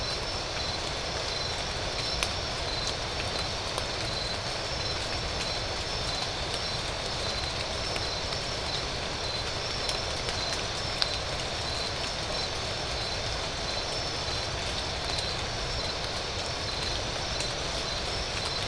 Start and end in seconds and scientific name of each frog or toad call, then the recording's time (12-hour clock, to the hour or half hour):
none
~3am